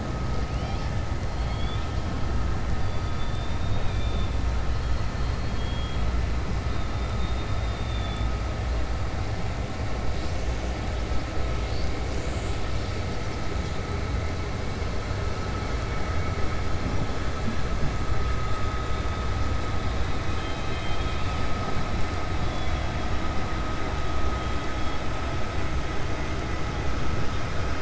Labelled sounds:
4.7	6.0	killer whale, 2.6 to 4.9 kHz

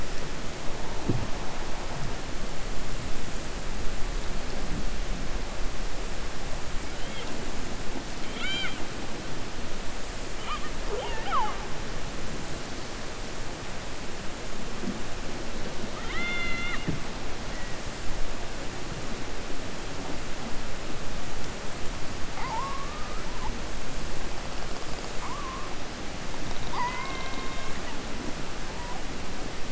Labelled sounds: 26.5	28.0	killer whale, 0.74 to 4.9 kHz

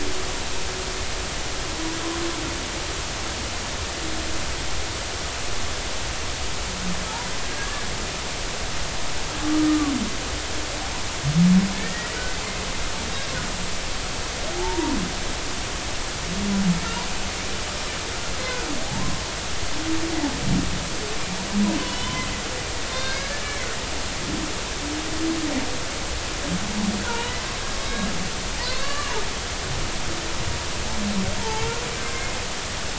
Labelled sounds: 7.4	7.9	humpback whale, 1.6 to 1.8 kHz
9.5	9.9	humpback whale, 1.1 to 1.3 kHz
11.7	12.1	humpback whale, 1.7 to 2.0 kHz
14.5	15.0	humpback whale, 0.80 to 1.0 kHz
18.8	19.1	humpback whale, 0.80 to 1.1 kHz
21.8	22.3	humpback whale, 0.96 to 3.1 kHz
22.9	23.6	humpback whale, 1.5 to 5.1 kHz
27.0	27.4	humpback whale, 1.3 to 3.0 kHz
27.8	28.1	humpback whale, 3.8 to 3.9 kHz
28.6	29.1	humpback whale, 0.80 to 4.6 kHz
32.1	32.4	humpback whale, 2.0 to 2.2 kHz

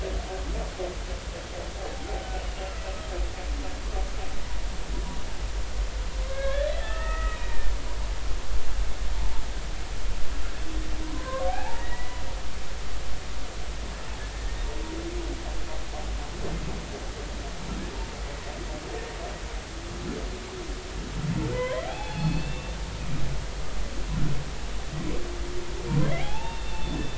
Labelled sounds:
6.3	7.7	humpback whale, 1.2 to 2.8 kHz
11.1	12.2	humpback whale, 0.80 to 2.0 kHz
21.5	22.8	humpback whale, 0.80 to 3.6 kHz
26.0	26.9	humpback whale, 0.80 to 3.7 kHz

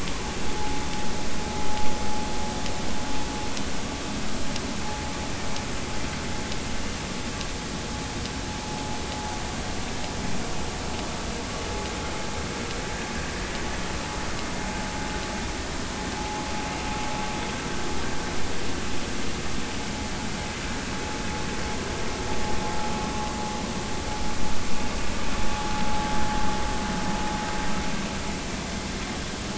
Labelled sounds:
16.2	16.4	vessel noise, 0.80 to 0.90 kHz

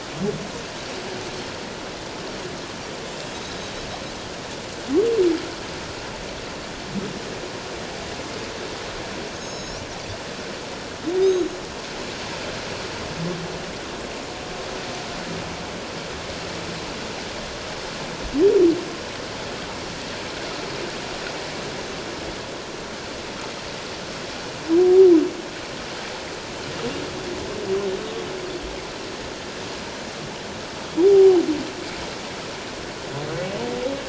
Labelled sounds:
9.4	9.9	Pacific white-sided dolphin, 3.8 to 6.8 kHz
11.2	11.5	Pacific white-sided dolphin, 3.6 to 6.6 kHz
31.0	31.4	humpback whale, 0.78 to 1.0 kHz

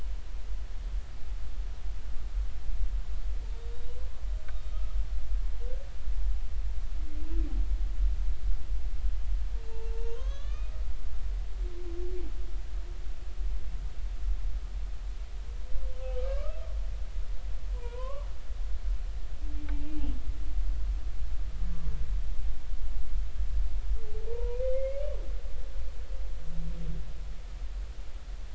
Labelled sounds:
4.5	5.0	humpback whale, 1.2 to 3.7 kHz
9.6	10.7	humpback whale, 0.83 to 6.6 kHz
16.3	16.6	humpback whale, 1.1 to 1.3 kHz
17.7	18.3	humpback whale, 0.90 to 1.6 kHz
24.3	25.0	humpback whale, 0.90 to 2.3 kHz

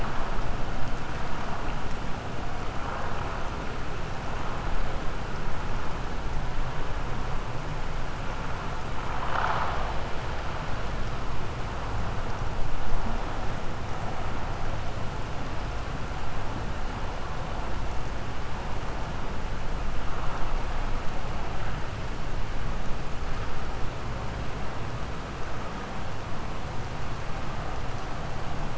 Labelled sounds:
9.1	9.9	vessel noise, 0.56 to 5.2 kHz

